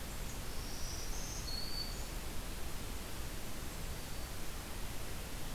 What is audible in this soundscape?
Black-throated Green Warbler